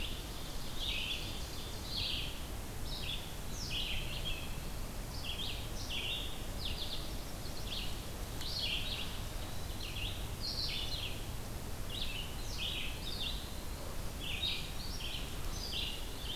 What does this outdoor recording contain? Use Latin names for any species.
Vireo olivaceus, Seiurus aurocapilla, Setophaga pensylvanica, Contopus virens